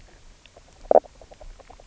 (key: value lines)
label: biophony, knock croak
recorder: SoundTrap 300